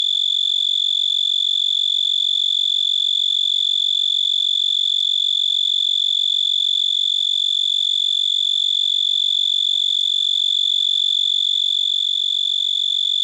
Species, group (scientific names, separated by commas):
Oecanthus dulcisonans, Orthoptera